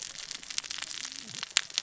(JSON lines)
{"label": "biophony, cascading saw", "recorder": "SoundTrap 600 or HydroMoth"}